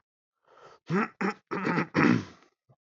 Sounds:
Throat clearing